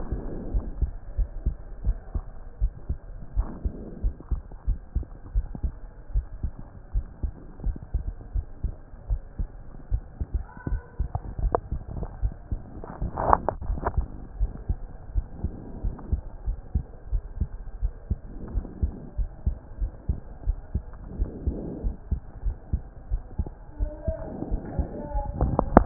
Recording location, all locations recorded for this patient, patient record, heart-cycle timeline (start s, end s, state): aortic valve (AV)
aortic valve (AV)+pulmonary valve (PV)+tricuspid valve (TV)+mitral valve (MV)
#Age: Child
#Sex: Male
#Height: 136.0 cm
#Weight: 30.9 kg
#Pregnancy status: False
#Murmur: Absent
#Murmur locations: nan
#Most audible location: nan
#Systolic murmur timing: nan
#Systolic murmur shape: nan
#Systolic murmur grading: nan
#Systolic murmur pitch: nan
#Systolic murmur quality: nan
#Diastolic murmur timing: nan
#Diastolic murmur shape: nan
#Diastolic murmur grading: nan
#Diastolic murmur pitch: nan
#Diastolic murmur quality: nan
#Outcome: Abnormal
#Campaign: 2014 screening campaign
0.00	0.10	systole
0.10	0.22	S2
0.22	0.52	diastole
0.52	0.66	S1
0.66	0.80	systole
0.80	0.94	S2
0.94	1.18	diastole
1.18	1.30	S1
1.30	1.44	systole
1.44	1.58	S2
1.58	1.82	diastole
1.82	1.98	S1
1.98	2.12	systole
2.12	2.26	S2
2.26	2.62	diastole
2.62	2.74	S1
2.74	2.88	systole
2.88	3.00	S2
3.00	3.36	diastole
3.36	3.50	S1
3.50	3.62	systole
3.62	3.72	S2
3.72	4.02	diastole
4.02	4.14	S1
4.14	4.28	systole
4.28	4.42	S2
4.42	4.68	diastole
4.68	4.80	S1
4.80	4.94	systole
4.94	5.08	S2
5.08	5.34	diastole
5.34	5.48	S1
5.48	5.64	systole
5.64	5.78	S2
5.78	6.14	diastole
6.14	6.28	S1
6.28	6.44	systole
6.44	6.58	S2
6.58	6.94	diastole
6.94	7.08	S1
7.08	7.22	systole
7.22	7.34	S2
7.34	7.64	diastole
7.64	7.76	S1
7.76	7.92	systole
7.92	8.06	S2
8.06	8.32	diastole
8.32	8.46	S1
8.46	8.64	systole
8.64	8.76	S2
8.76	9.08	diastole
9.08	9.22	S1
9.22	9.40	systole
9.40	9.54	S2
9.54	9.90	diastole
9.90	10.06	S1
10.06	10.30	systole
10.30	10.46	S2
10.46	10.72	diastole
10.72	10.82	S1
10.82	10.96	systole
10.96	11.10	S2
11.10	11.40	diastole
11.40	11.54	S1
11.54	11.70	systole
11.70	11.86	S2
11.86	12.18	diastole
12.18	12.32	S1
12.32	12.50	systole
12.50	12.64	S2
12.64	13.00	diastole
13.00	13.10	S1
13.10	13.24	systole
13.24	13.40	S2
13.40	13.68	diastole
13.68	13.84	S1
13.84	13.96	systole
13.96	14.10	S2
14.10	14.38	diastole
14.38	14.52	S1
14.52	14.68	systole
14.68	14.82	S2
14.82	15.12	diastole
15.12	15.26	S1
15.26	15.42	systole
15.42	15.52	S2
15.52	15.80	diastole
15.80	15.94	S1
15.94	16.10	systole
16.10	16.22	S2
16.22	16.46	diastole
16.46	16.58	S1
16.58	16.74	systole
16.74	16.84	S2
16.84	17.10	diastole
17.10	17.22	S1
17.22	17.38	systole
17.38	17.50	S2
17.50	17.82	diastole
17.82	17.92	S1
17.92	18.08	systole
18.08	18.20	S2
18.20	18.52	diastole
18.52	18.66	S1
18.66	18.82	systole
18.82	18.92	S2
18.92	19.18	diastole
19.18	19.30	S1
19.30	19.42	systole
19.42	19.54	S2
19.54	19.80	diastole
19.80	19.92	S1
19.92	20.08	systole
20.08	20.18	S2
20.18	20.44	diastole
20.44	20.58	S1
20.58	20.74	systole
20.74	20.84	S2
20.84	21.16	diastole
21.16	21.30	S1
21.30	21.46	systole
21.46	21.58	S2
21.58	21.84	diastole
21.84	21.94	S1
21.94	22.10	systole
22.10	22.22	S2
22.22	22.44	diastole
22.44	22.56	S1
22.56	22.72	systole
22.72	22.82	S2
22.82	23.10	diastole
23.10	23.22	S1
23.22	23.38	systole
23.38	23.48	S2
23.48	23.80	diastole
23.80	23.92	S1
23.92	24.06	systole
24.06	24.16	S2
24.16	24.48	diastole
24.48	24.62	S1
24.62	24.74	systole
24.74	24.88	S2
24.88	25.14	diastole
25.14	25.26	S1
25.26	25.36	systole
25.36	25.52	S2
25.52	25.74	diastole
25.74	25.86	S1